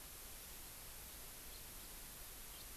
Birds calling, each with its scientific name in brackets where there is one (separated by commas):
House Finch (Haemorhous mexicanus)